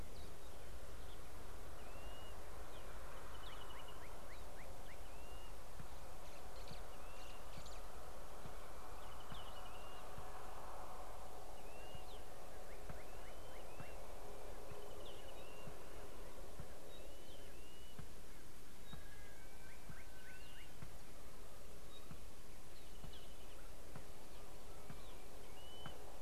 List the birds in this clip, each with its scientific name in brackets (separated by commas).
White-browed Sparrow-Weaver (Plocepasser mahali), Brubru (Nilaus afer), Pygmy Batis (Batis perkeo), Blue-naped Mousebird (Urocolius macrourus)